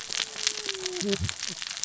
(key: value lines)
label: biophony, cascading saw
recorder: SoundTrap 600 or HydroMoth